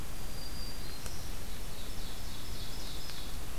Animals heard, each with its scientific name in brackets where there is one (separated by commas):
Ovenbird (Seiurus aurocapilla), Black-throated Green Warbler (Setophaga virens)